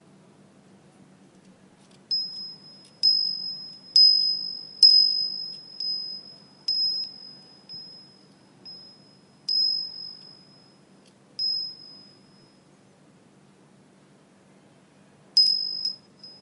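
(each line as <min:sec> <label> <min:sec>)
0:02.1 Wind chimes outside sound louder and softer. 0:07.6
0:07.6 Wind chimes softly tinkling outdoors. 0:09.5
0:09.5 Wind chimes tinkling at a distance outdoors. 0:13.0
0:15.4 Wind chimes tinkling rapidly with intermittent stops. 0:16.4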